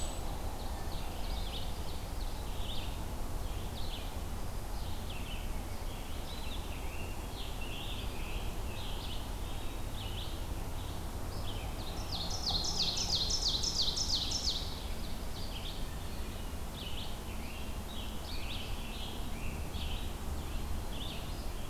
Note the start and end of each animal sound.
[0.00, 21.69] Red-eyed Vireo (Vireo olivaceus)
[0.63, 2.58] Ovenbird (Seiurus aurocapilla)
[6.15, 8.97] Scarlet Tanager (Piranga olivacea)
[8.84, 9.93] Eastern Wood-Pewee (Contopus virens)
[11.80, 14.63] Ovenbird (Seiurus aurocapilla)
[17.27, 20.24] Scarlet Tanager (Piranga olivacea)

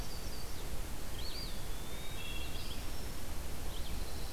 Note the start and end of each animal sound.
[0.00, 0.68] Yellow-rumped Warbler (Setophaga coronata)
[0.00, 4.33] Red-eyed Vireo (Vireo olivaceus)
[1.03, 2.57] Eastern Wood-Pewee (Contopus virens)
[2.11, 2.99] Wood Thrush (Hylocichla mustelina)
[3.35, 4.33] Pine Warbler (Setophaga pinus)

